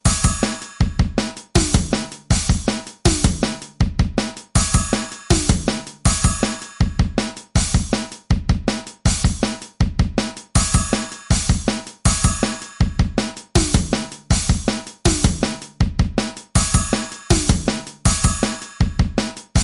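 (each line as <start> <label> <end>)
0.0 A drum strikes a steady, resonant rhythmic beat. 19.6
0.0 A drum strikes a steady, rhythmic beat while a cymbal produces a metallic ringing sound that gradually fades. 19.6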